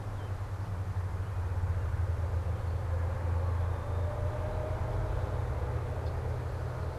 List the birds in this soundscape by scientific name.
Turdus migratorius, Agelaius phoeniceus